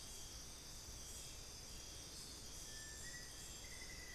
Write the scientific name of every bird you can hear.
Crypturellus soui, Formicarius analis